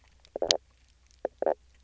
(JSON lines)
{"label": "biophony, knock croak", "recorder": "SoundTrap 300"}